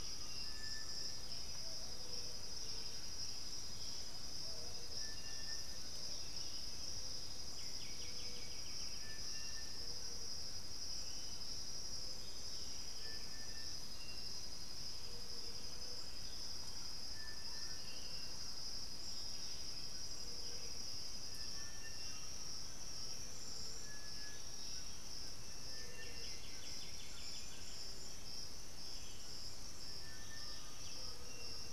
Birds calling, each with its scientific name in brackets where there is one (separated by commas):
Undulated Tinamou (Crypturellus undulatus), White-winged Becard (Pachyramphus polychopterus), Buff-throated Saltator (Saltator maximus), White-lored Tyrannulet (Ornithion inerme), unidentified bird, Thrush-like Wren (Campylorhynchus turdinus), Striped Cuckoo (Tapera naevia)